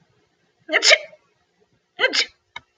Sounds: Sneeze